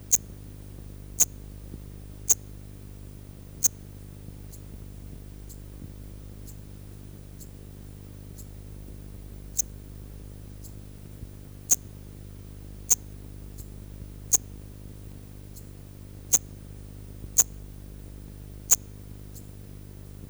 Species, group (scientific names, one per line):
Eupholidoptera garganica
Orthoptera